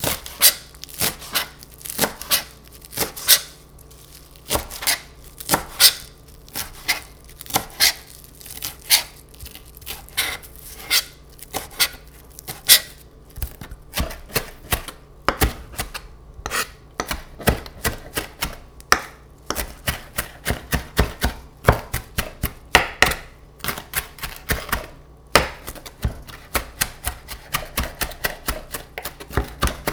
Is there a person doing something?
yes